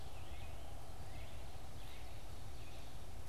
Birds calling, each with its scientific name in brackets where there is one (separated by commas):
Red-eyed Vireo (Vireo olivaceus)